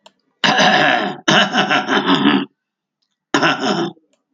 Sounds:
Throat clearing